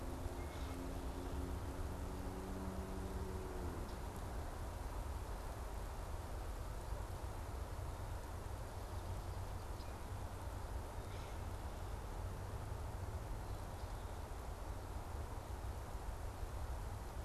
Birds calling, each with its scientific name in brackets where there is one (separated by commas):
Common Grackle (Quiscalus quiscula)